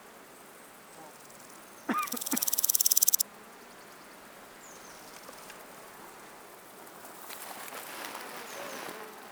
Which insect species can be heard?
Chorthippus apicalis